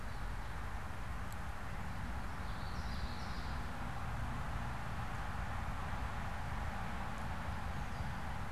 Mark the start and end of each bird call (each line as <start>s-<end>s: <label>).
2.3s-3.6s: Common Yellowthroat (Geothlypis trichas)